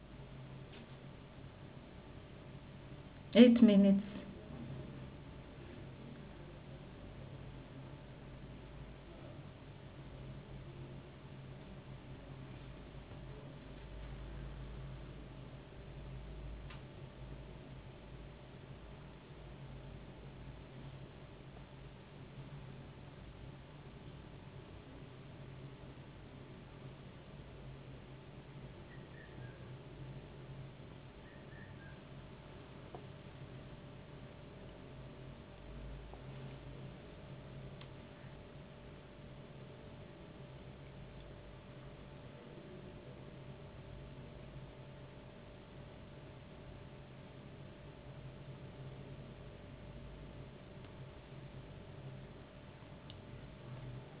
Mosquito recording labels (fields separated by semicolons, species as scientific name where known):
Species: no mosquito; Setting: insect culture